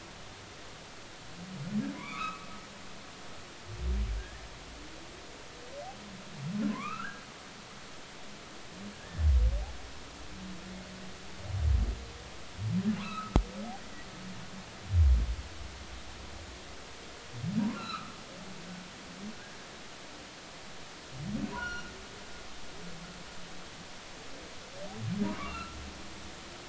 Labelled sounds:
2.0	2.4	humpback whale, 0.93 to 2.7 kHz
4.2	4.4	humpback whale, 1.6 to 1.9 kHz
6.7	7.2	humpback whale, 0.93 to 2.7 kHz
9.0	9.2	humpback whale, 1.6 to 1.8 kHz
13.0	13.4	humpback whale, 0.96 to 1.6 kHz
13.8	14.1	humpback whale, 1.8 to 2.1 kHz
17.7	18.2	humpback whale, 1.1 to 2.8 kHz
21.5	21.9	humpback whale, 1.3 to 5.8 kHz
25.4	25.8	humpback whale, 1.0 to 2.8 kHz

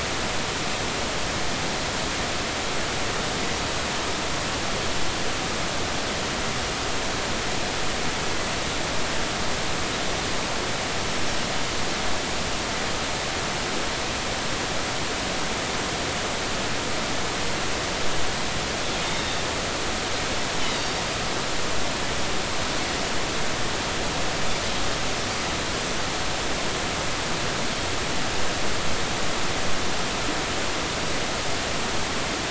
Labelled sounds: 19.0	19.4	Pacific white-sided dolphin, 3.5 to 3.8 kHz
20.7	21.0	Pacific white-sided dolphin, 4.5 to 4.9 kHz

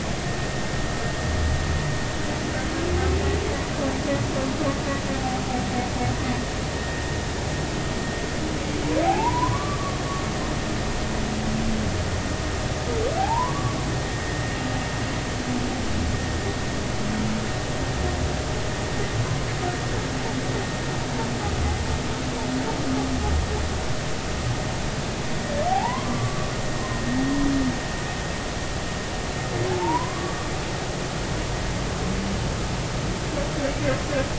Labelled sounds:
9.0	10.0	humpback whale, 0.80 to 1.3 kHz
13.2	13.8	humpback whale, 0.80 to 1.2 kHz
25.7	26.5	humpback whale, 0.80 to 1.2 kHz
29.8	30.3	humpback whale, 0.83 to 1.2 kHz

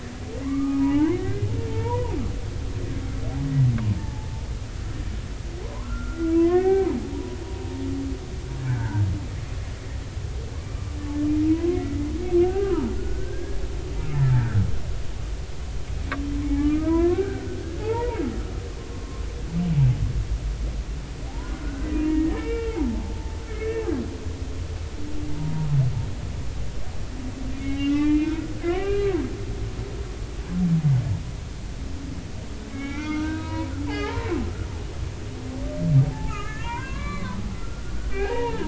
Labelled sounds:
0.4	2.2	humpback whale, 0.80 to 2.3 kHz
3.9	4.3	humpback whale, 0.80 to 0.93 kHz
5.6	7.4	humpback whale, 0.80 to 2.4 kHz
8.7	9.0	humpback whale, 1.4 to 1.8 kHz
11.5	12.1	humpback whale, 0.93 to 2.1 kHz
12.4	13.6	humpback whale, 0.86 to 1.7 kHz
14.3	14.6	humpback whale, 1.3 to 1.9 kHz
16.4	18.2	humpback whale, 0.80 to 2.5 kHz
18.9	19.2	humpback whale, 0.99 to 1.2 kHz
21.3	23.9	humpback whale, 0.80 to 2.8 kHz
25.3	25.7	humpback whale, 0.86 to 1.0 kHz
27.6	29.2	humpback whale, 0.83 to 3.8 kHz
32.7	34.3	humpback whale, 0.80 to 4.2 kHz
36.1	38.6	humpback whale, 0.80 to 4.1 kHz

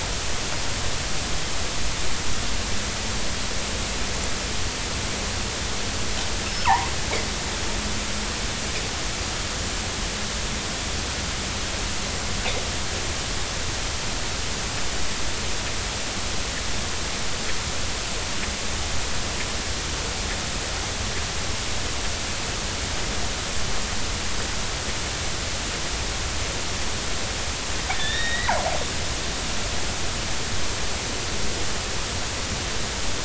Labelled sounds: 6.4	6.9	killer whale, northern resident, 0.80 to 5.3 kHz
27.9	28.5	killer whale, northern resident, 1.7 to 4.0 kHz

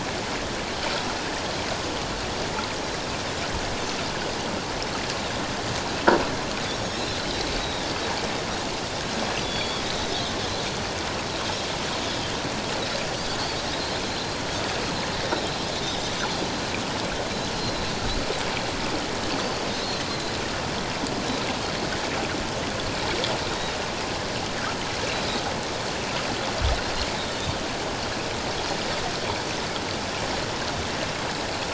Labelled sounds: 6.7	7.1	Pacific white-sided dolphin, 5.3 to 6.7 kHz
7.6	7.9	Pacific white-sided dolphin, 3.4 to 3.9 kHz
9.4	9.8	Pacific white-sided dolphin, 3.2 to 4.6 kHz
14.0	14.4	Pacific white-sided dolphin, 3.8 to 4.3 kHz
17.5	17.9	Pacific white-sided dolphin, 3.9 to 4.4 kHz
23.5	23.7	Pacific white-sided dolphin, 3.6 to 3.9 kHz
27.2	27.6	Pacific white-sided dolphin, 3.5 to 3.8 kHz

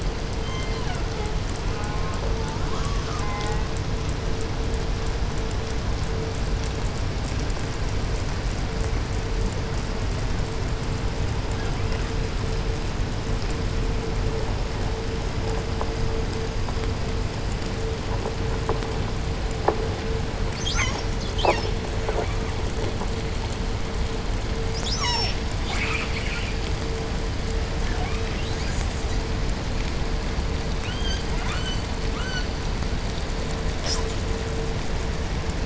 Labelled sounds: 0.3	1.5	killer whale, southern resident, J pod, call S07, 0.29 to 6.8 kHz
1.6	2.3	killer whale, southern resident, J pod, call S04, 0.50 to 3.3 kHz
2.3	3.2	killer whale, 0.59 to 6.9 kHz
3.1	3.9	killer whale, southern resident, J pod, call S04, 0.44 to 3.3 kHz
11.4	12.3	killer whale, southern resident, 0.50 to 3.4 kHz
20.4	21.7	killer whale, southern resident, call S36, 0.48 to 8.0 kHz
24.6	25.5	killer whale, southern resident, call S36, 0.36 to 8.0 kHz
25.6	26.9	killer whale, southern resident, call S10, 0.38 to 8.0 kHz
27.7	28.4	killer whale, 0.50 to 5.1 kHz
28.4	29.3	killer whale, southern resident, 0.27 to 8.0 kHz
30.8	32.5	killer whale, 0.69 to 8.0 kHz
33.7	34.3	killer whale, southern resident, 0.50 to 8.0 kHz

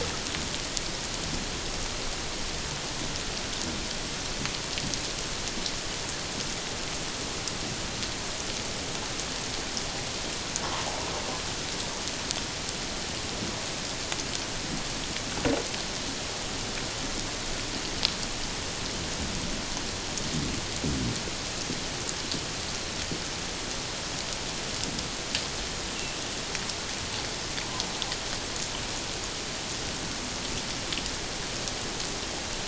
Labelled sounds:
10.6	10.9	humpback whale, 0.88 to 1.2 kHz

